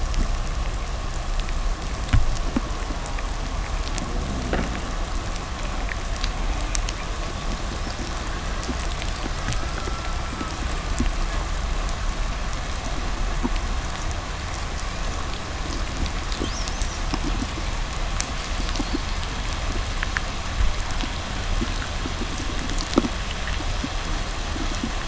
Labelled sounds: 3.8	5.0	fish, 0 to 0.58 kHz
4.3	4.9	noise likely from the mooring, 0 to 4.1 kHz

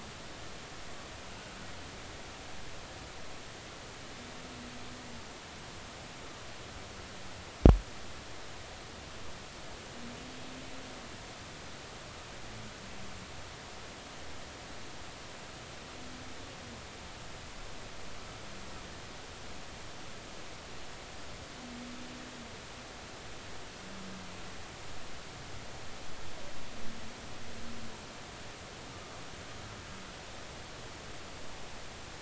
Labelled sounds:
1.3	1.6	humpback whale, 1.4 to 1.5 kHz

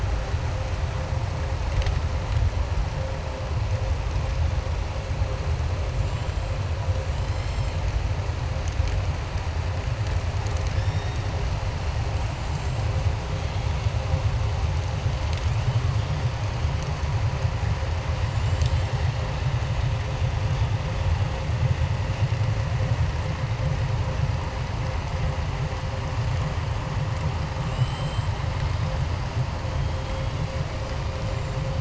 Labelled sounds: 5.9	6.5	killer whale, southern resident, 7.1 to 7.5 kHz
27.6	28.3	killer whale, southern resident, 2.7 to 7.9 kHz

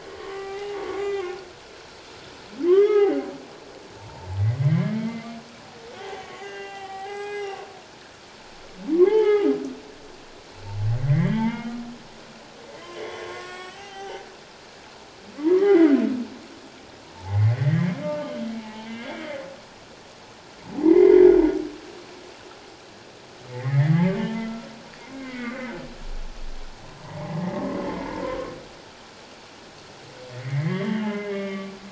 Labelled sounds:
0.2	1.3	humpback whale, 0.78 to 3.7 kHz
2.7	3.2	humpback whale, 0.78 to 3.5 kHz
3.9	4.3	humpback whale, 0.84 to 0.97 kHz
4.6	5.4	humpback whale, 1.8 to 2.3 kHz
6.0	7.6	humpback whale, 0.78 to 7.8 kHz
9.0	9.5	humpback whale, 0.78 to 3.2 kHz
11.0	11.8	humpback whale, 0.84 to 3.4 kHz
12.7	14.3	humpback whale, 0.78 to 7.9 kHz
15.5	16.0	humpback whale, 1.4 to 3.1 kHz
17.1	19.2	humpback whale, 0.78 to 3.2 kHz
20.8	21.3	humpback whale, 0.78 to 2.2 kHz
23.5	24.7	humpback whale, 1.3 to 2.3 kHz
25.1	25.8	humpback whale, 1.4 to 2.3 kHz
30.3	31.7	humpback whale, 0.97 to 3.2 kHz

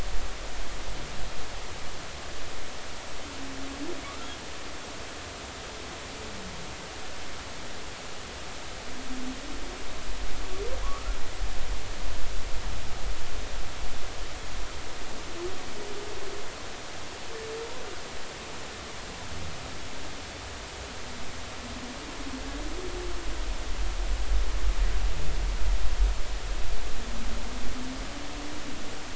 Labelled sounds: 4.0	4.3	humpback whale, 1.1 to 1.5 kHz
10.8	11.2	humpback whale, 0.96 to 1.4 kHz

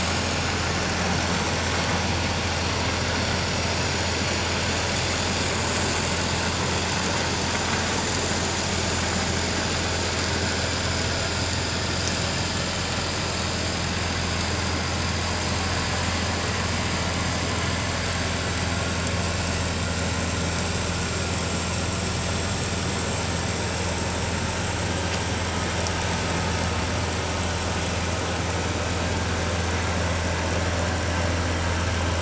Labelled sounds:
18.0	18.2	vessel noise, 1.5 to 1.7 kHz

